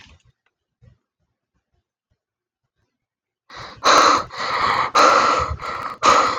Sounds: Sigh